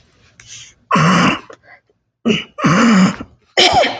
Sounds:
Throat clearing